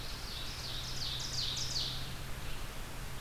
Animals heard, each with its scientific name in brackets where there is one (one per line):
Red-eyed Vireo (Vireo olivaceus)
Ovenbird (Seiurus aurocapilla)